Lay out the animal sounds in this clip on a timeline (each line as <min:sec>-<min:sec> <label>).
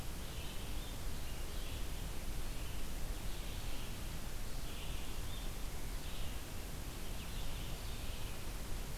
0:00.0-0:09.0 Red-eyed Vireo (Vireo olivaceus)